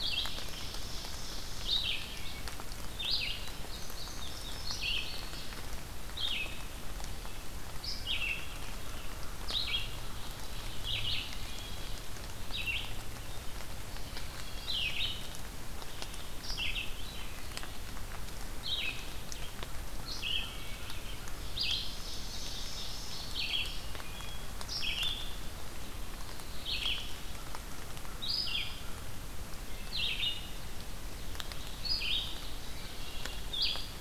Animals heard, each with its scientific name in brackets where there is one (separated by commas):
Ovenbird (Seiurus aurocapilla), American Crow (Corvus brachyrhynchos), Black-throated Blue Warbler (Setophaga caerulescens), Red-eyed Vireo (Vireo olivaceus), Wood Thrush (Hylocichla mustelina), Indigo Bunting (Passerina cyanea)